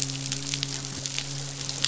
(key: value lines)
label: biophony, midshipman
recorder: SoundTrap 500